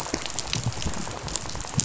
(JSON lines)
{"label": "biophony, rattle", "recorder": "SoundTrap 500"}